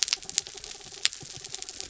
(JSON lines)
{"label": "anthrophony, mechanical", "recorder": "SoundTrap 300"}